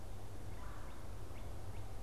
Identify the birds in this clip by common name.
Red-bellied Woodpecker, Northern Cardinal